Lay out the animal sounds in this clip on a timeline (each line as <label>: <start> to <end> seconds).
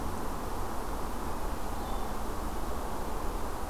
Hermit Thrush (Catharus guttatus): 1.2 to 2.2 seconds